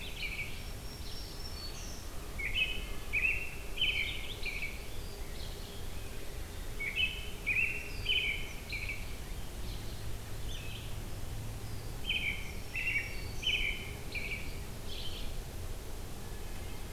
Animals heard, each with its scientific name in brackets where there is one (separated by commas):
American Robin (Turdus migratorius), Black-throated Green Warbler (Setophaga virens), Wood Thrush (Hylocichla mustelina)